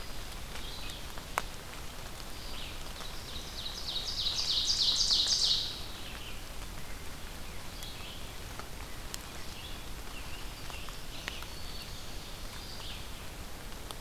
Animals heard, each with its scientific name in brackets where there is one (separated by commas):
Red-eyed Vireo (Vireo olivaceus), Black-throated Green Warbler (Setophaga virens), Ovenbird (Seiurus aurocapilla), Eastern Wood-Pewee (Contopus virens)